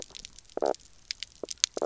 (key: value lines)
label: biophony, knock croak
recorder: SoundTrap 300